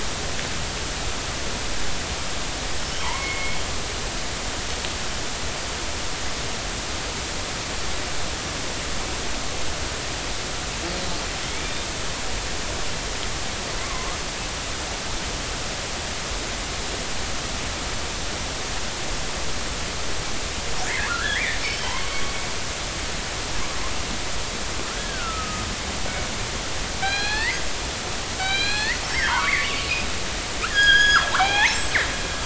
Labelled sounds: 3.0	3.6	killer whale, northern resident, 0.83 to 2.3 kHz
11.5	11.8	killer whale, northern resident, 2.1 to 2.5 kHz
13.8	14.1	killer whale, northern resident, 0.99 to 1.2 kHz
21.1	22.0	killer whale, northern resident, 1.1 to 5.4 kHz
24.9	25.6	killer whale, northern resident, 1.2 to 1.7 kHz
27.0	27.7	killer whale, northern resident, 0.80 to 4.6 kHz
28.4	29.9	killer whale, northern resident, 0.83 to 4.9 kHz
30.6	32.0	killer whale, northern resident, 0.80 to 7.8 kHz

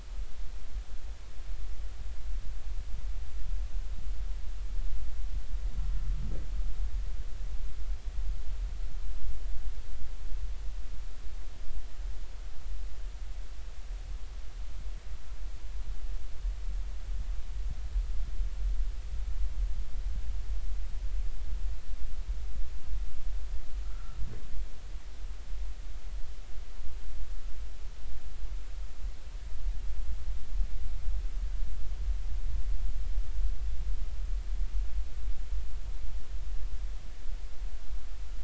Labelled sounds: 23.9	24.2	humpback whale, 1.2 to 1.5 kHz

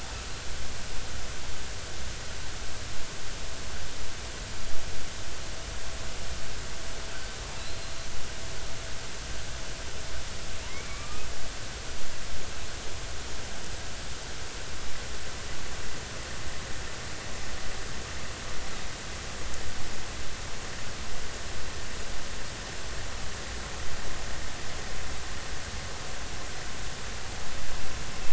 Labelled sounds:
10.6	11.3	killer whale, offshore, 0.86 to 2.4 kHz

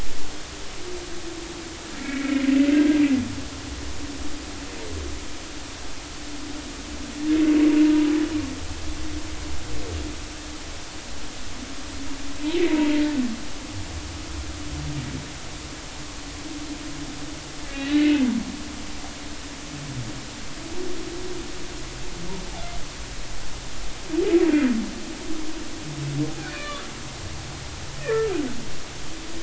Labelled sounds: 2.0	2.5	humpback whale, 2.0 to 2.3 kHz
17.6	18.2	humpback whale, 1.9 to 3.0 kHz
26.4	26.8	humpback whale, 1.1 to 3.6 kHz
28.0	28.3	humpback whale, 1.6 to 1.9 kHz

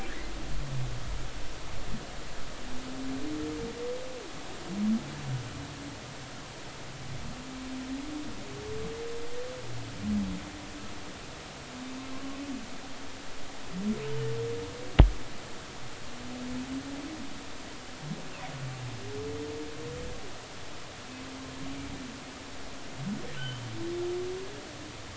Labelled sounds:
23.4	23.6	humpback whale, 2.9 to 3.2 kHz

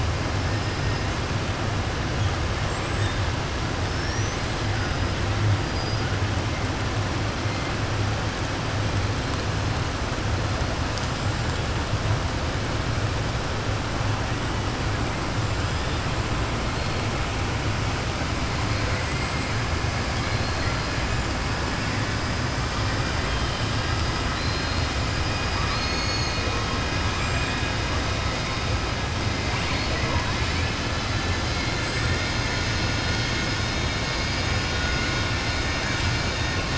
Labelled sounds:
2.6	3.1	killer whale, southern resident, 7.3 to 8.0 kHz
18.8	19.3	killer whale, southern resident, 1.4 to 2.5 kHz
20.1	20.9	killer whale, southern resident, 3.2 to 5.1 kHz
24.3	24.9	killer whale, southern resident, 3.7 to 5.1 kHz
25.6	26.5	killer whale, southern resident, 3.8 to 6.6 kHz
27.1	27.5	killer whale, southern resident, 7.3 to 7.6 kHz

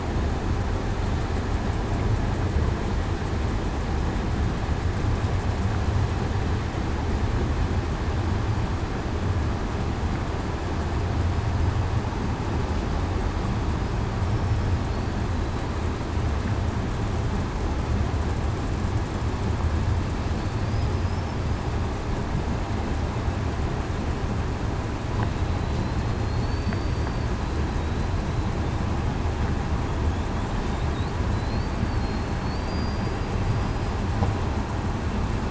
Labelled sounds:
14.3	14.7	killer whale, southern resident, 5.3 to 5.4 kHz
26.1	27.3	killer whale, southern resident, 4.2 to 4.7 kHz
31.3	31.6	killer whale, southern resident, 4.0 to 4.4 kHz
32.0	32.4	killer whale, southern resident, 4.2 to 4.4 kHz
32.6	33.1	killer whale, southern resident, 4.7 to 4.8 kHz

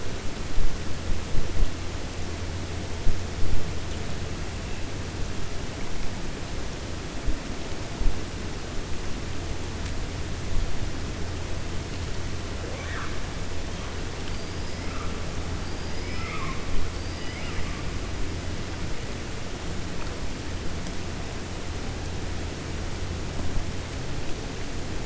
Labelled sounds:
15.6	16.4	killer whale, 4.7 to 5.3 kHz
16.9	17.7	killer whale, 1.2 to 4.9 kHz

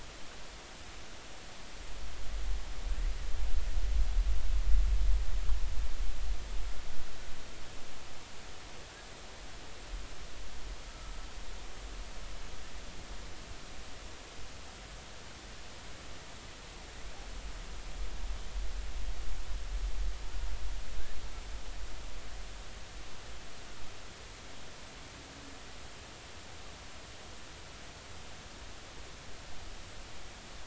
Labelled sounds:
10.9	11.1	humpback whale, 1.3 to 1.4 kHz

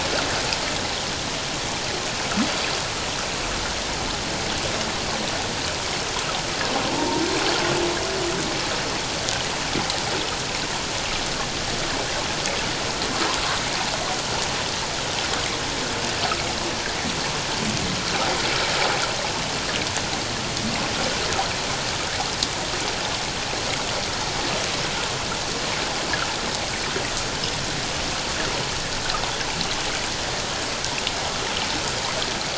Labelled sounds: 6.9	7.2	humpback whale, 0.84 to 1.0 kHz

